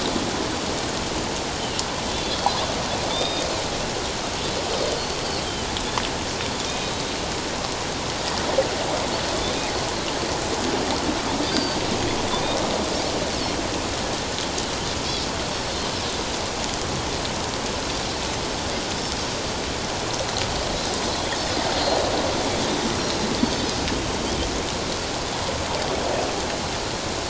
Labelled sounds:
1.6	2.5	Pacific white-sided dolphin, 2.7 to 3.6 kHz
3.1	3.4	Pacific white-sided dolphin, 3.4 to 5.0 kHz
6.7	7.1	Pacific white-sided dolphin, 2.4 to 3.9 kHz
11.4	11.8	Pacific white-sided dolphin, 1.5 to 4.8 kHz
15.6	15.9	Pacific white-sided dolphin, 4.0 to 4.5 kHz
21.7	22.0	Pacific white-sided dolphin, 4.1 to 4.3 kHz
23.0	23.3	Pacific white-sided dolphin, 4.0 to 4.3 kHz

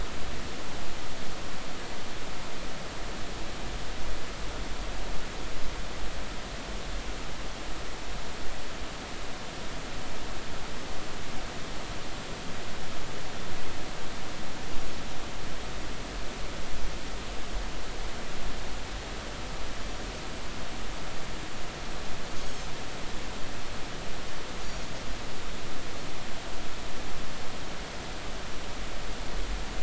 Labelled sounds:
22.4	22.7	Pacific white-sided dolphin, 6.0 to 6.7 kHz

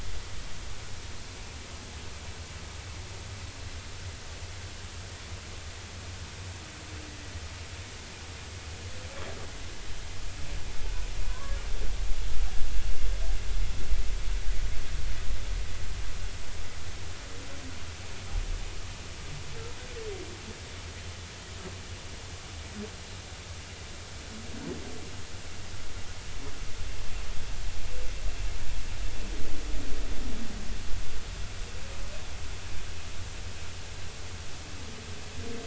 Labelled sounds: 11.3	11.6	humpback whale, 0.96 to 1.2 kHz

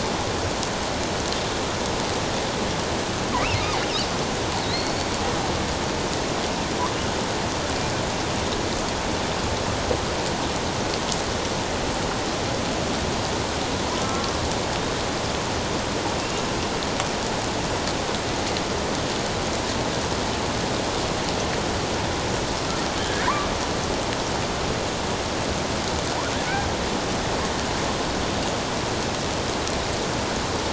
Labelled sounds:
4.6	5.1	killer whale, offshore, 3.8 to 4.5 kHz
14.0	14.3	killer whale, offshore, 1.0 to 1.4 kHz
23.0	23.3	killer whale, offshore, 1.5 to 1.8 kHz

